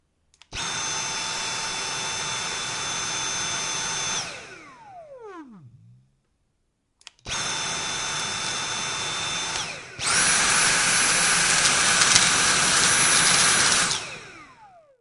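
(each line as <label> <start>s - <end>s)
A drill runs at a moderate speed and then gradually stops. 0.5s - 5.5s
A drill runs at a moderate speed and then gradually stops. 7.3s - 10.0s
A drill runs at maximum speed and then gradually stops. 10.0s - 14.7s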